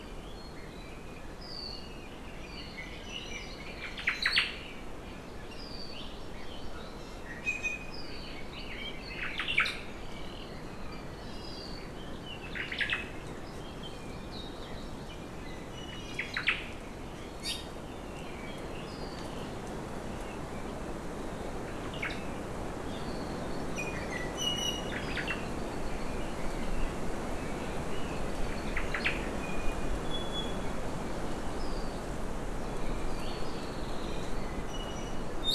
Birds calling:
Hawaii Creeper (Loxops mana), Red-billed Leiothrix (Leiothrix lutea), Iiwi (Drepanis coccinea), Hawaii Amakihi (Chlorodrepanis virens), Omao (Myadestes obscurus)

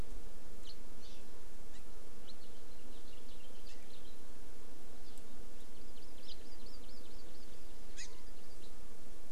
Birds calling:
House Finch (Haemorhous mexicanus), Hawaii Amakihi (Chlorodrepanis virens)

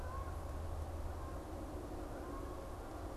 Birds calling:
Canada Goose (Branta canadensis)

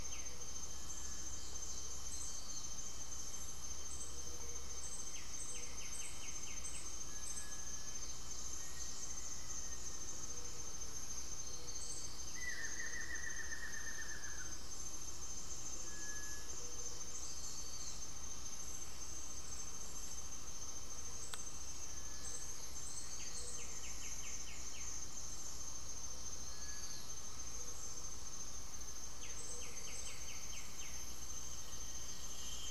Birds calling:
Cinereous Tinamou (Crypturellus cinereus), Buff-throated Woodcreeper (Xiphorhynchus guttatus), White-winged Becard (Pachyramphus polychopterus), Gray-fronted Dove (Leptotila rufaxilla), Bluish-fronted Jacamar (Galbula cyanescens), unidentified bird

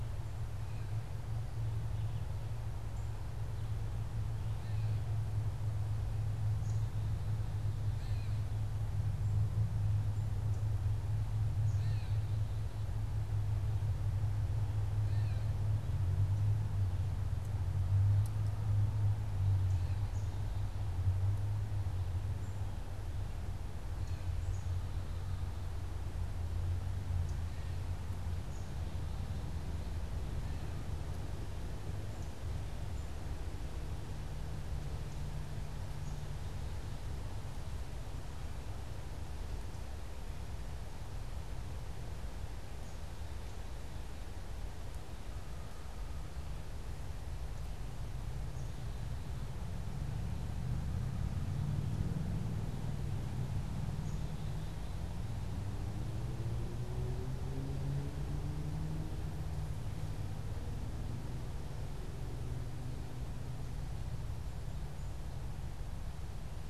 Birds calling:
Gray Catbird (Dumetella carolinensis), Black-capped Chickadee (Poecile atricapillus)

